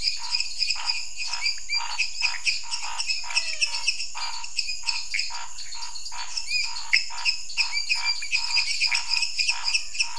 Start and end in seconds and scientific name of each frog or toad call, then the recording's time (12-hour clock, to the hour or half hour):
0.0	10.1	Dendropsophus minutus
0.0	10.1	Dendropsophus nanus
0.0	10.1	Leptodactylus podicipinus
0.0	10.1	Pithecopus azureus
0.0	10.1	Scinax fuscovarius
3.0	4.1	Physalaemus albonotatus
8:30pm